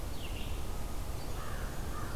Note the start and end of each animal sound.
[0.00, 2.15] Red-eyed Vireo (Vireo olivaceus)
[1.37, 2.15] American Crow (Corvus brachyrhynchos)

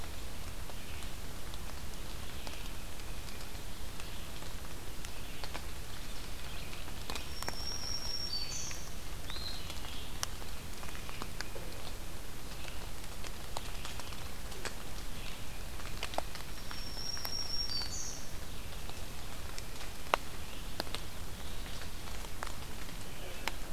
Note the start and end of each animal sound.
[0.00, 23.72] Red-eyed Vireo (Vireo olivaceus)
[2.56, 3.55] Tufted Titmouse (Baeolophus bicolor)
[7.19, 8.92] Black-throated Green Warbler (Setophaga virens)
[9.09, 10.15] Eastern Wood-Pewee (Contopus virens)
[16.44, 18.27] Black-throated Green Warbler (Setophaga virens)

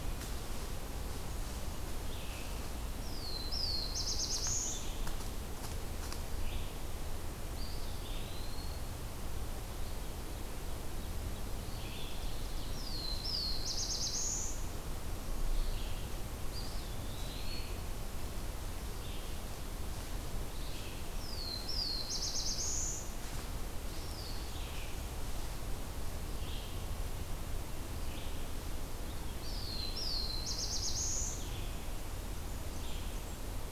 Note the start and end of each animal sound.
[0.00, 33.71] Red-eyed Vireo (Vireo olivaceus)
[2.79, 4.91] Black-throated Blue Warbler (Setophaga caerulescens)
[7.33, 9.05] Eastern Wood-Pewee (Contopus virens)
[12.55, 14.64] Black-throated Blue Warbler (Setophaga caerulescens)
[16.06, 17.90] Eastern Wood-Pewee (Contopus virens)
[20.75, 23.21] Black-throated Blue Warbler (Setophaga caerulescens)
[23.67, 24.59] Eastern Wood-Pewee (Contopus virens)
[29.16, 31.50] Black-throated Blue Warbler (Setophaga caerulescens)
[29.16, 30.14] Eastern Wood-Pewee (Contopus virens)
[31.74, 33.71] Blackburnian Warbler (Setophaga fusca)

